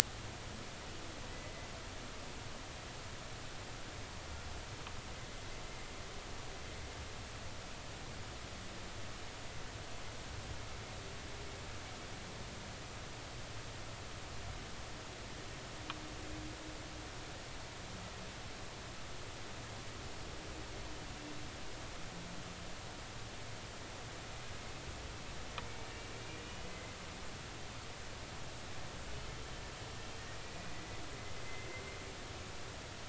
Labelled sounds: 1.3	1.7	humpback whale, 1.9 to 2.1 kHz
26.6	27.0	humpback whale, 2.0 to 2.1 kHz
30.5	30.8	humpback whale, 2.4 to 2.5 kHz
31.4	31.7	humpback whale, 2.0 to 2.1 kHz

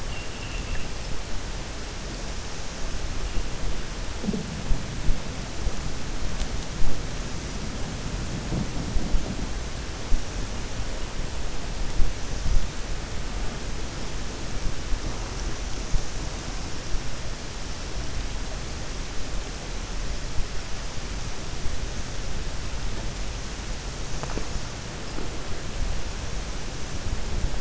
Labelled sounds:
0.0	0.9	vessel noise, 1.7 to 3.1 kHz

